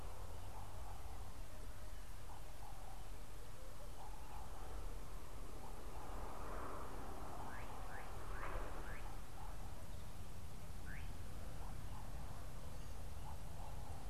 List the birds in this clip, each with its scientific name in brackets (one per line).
Slate-colored Boubou (Laniarius funebris)